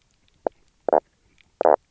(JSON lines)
{"label": "biophony, knock croak", "recorder": "SoundTrap 300"}